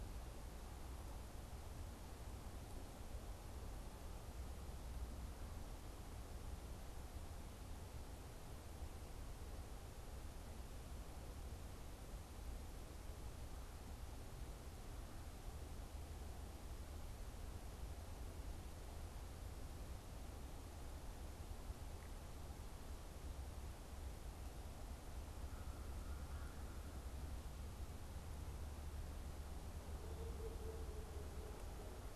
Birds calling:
American Crow (Corvus brachyrhynchos), unidentified bird

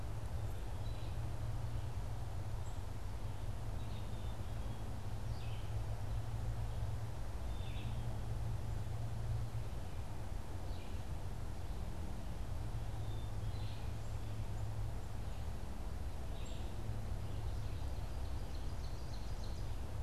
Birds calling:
Black-capped Chickadee (Poecile atricapillus), Ovenbird (Seiurus aurocapilla), Red-eyed Vireo (Vireo olivaceus)

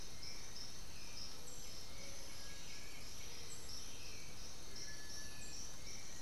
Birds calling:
White-winged Becard (Pachyramphus polychopterus), Black-billed Thrush (Turdus ignobilis), Cinereous Tinamou (Crypturellus cinereus), Little Tinamou (Crypturellus soui)

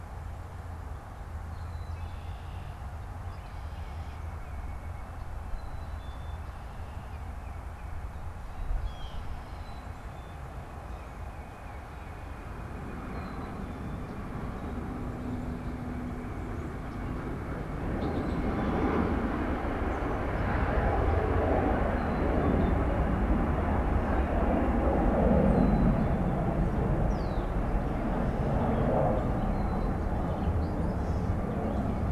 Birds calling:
Black-capped Chickadee (Poecile atricapillus), White-breasted Nuthatch (Sitta carolinensis), Tufted Titmouse (Baeolophus bicolor), Red-winged Blackbird (Agelaius phoeniceus), Blue Jay (Cyanocitta cristata), Gray Catbird (Dumetella carolinensis)

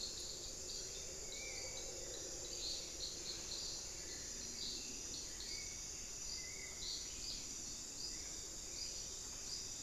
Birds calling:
Hauxwell's Thrush (Turdus hauxwelli), Spot-winged Antshrike (Pygiptila stellaris)

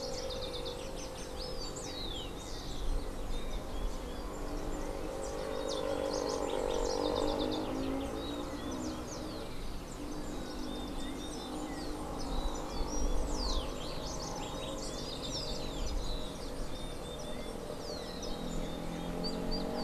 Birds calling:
House Wren (Troglodytes aedon), Golden-faced Tyrannulet (Zimmerius chrysops), Rufous-collared Sparrow (Zonotrichia capensis)

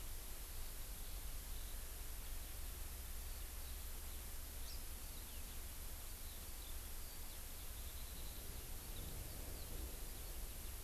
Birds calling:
Eurasian Skylark (Alauda arvensis)

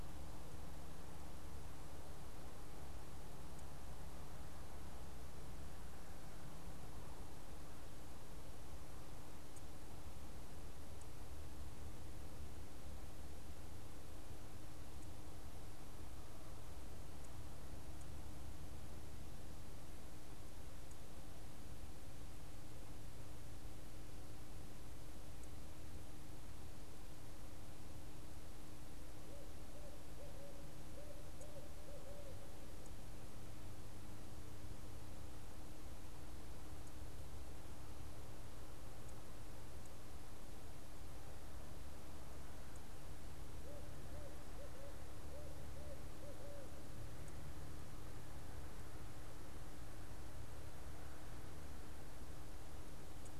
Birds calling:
Barred Owl (Strix varia)

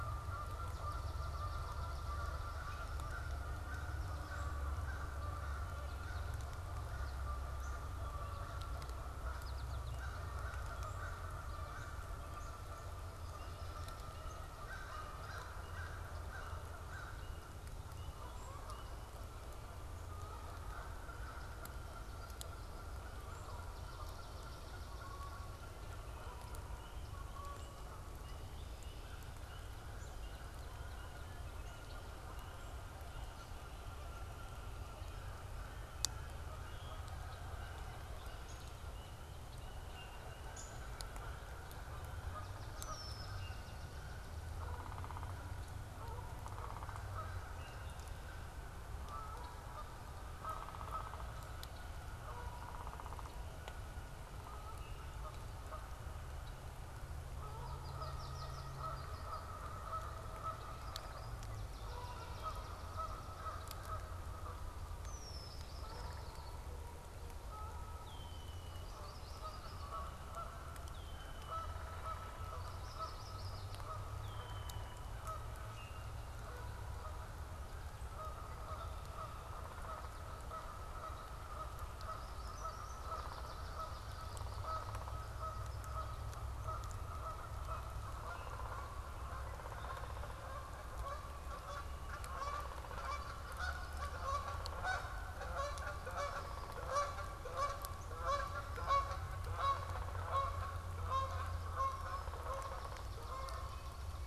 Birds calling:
unidentified bird, Red-winged Blackbird (Agelaius phoeniceus), American Goldfinch (Spinus tristis), American Crow (Corvus brachyrhynchos), Yellow-rumped Warbler (Setophaga coronata), Downy Woodpecker (Dryobates pubescens), Hairy Woodpecker (Dryobates villosus), Canada Goose (Branta canadensis), Swamp Sparrow (Melospiza georgiana), Common Grackle (Quiscalus quiscula)

